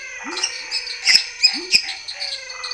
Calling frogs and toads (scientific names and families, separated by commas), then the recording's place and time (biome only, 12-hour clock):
Boana raniceps (Hylidae), Dendropsophus minutus (Hylidae), Dendropsophus nanus (Hylidae), Leptodactylus labyrinthicus (Leptodactylidae), Physalaemus albonotatus (Leptodactylidae), Phyllomedusa sauvagii (Hylidae)
Cerrado, 8:30pm